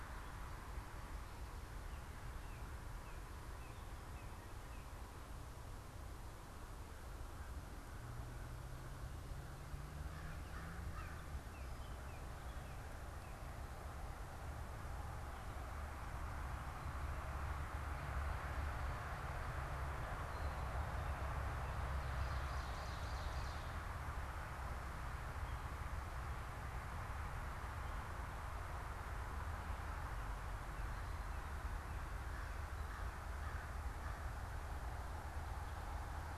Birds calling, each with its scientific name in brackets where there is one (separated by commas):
American Crow (Corvus brachyrhynchos), Ovenbird (Seiurus aurocapilla), Baltimore Oriole (Icterus galbula), Northern Cardinal (Cardinalis cardinalis)